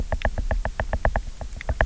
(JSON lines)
{"label": "biophony, knock", "recorder": "SoundTrap 300"}